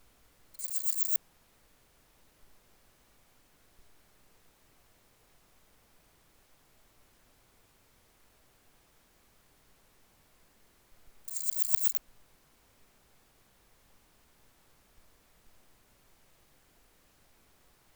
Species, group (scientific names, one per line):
Parnassiana chelmos
Orthoptera